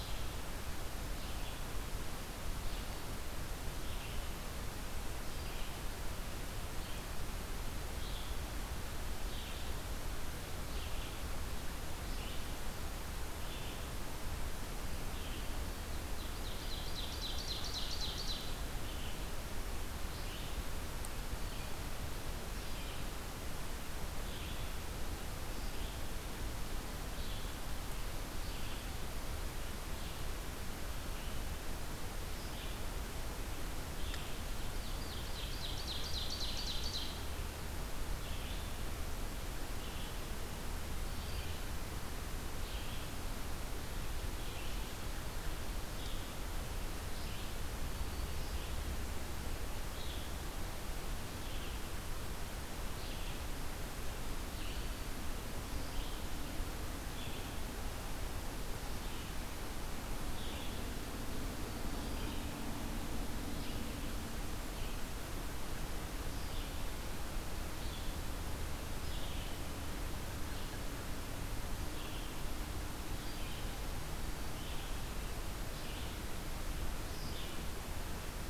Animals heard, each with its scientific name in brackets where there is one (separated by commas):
Ovenbird (Seiurus aurocapilla), Red-eyed Vireo (Vireo olivaceus)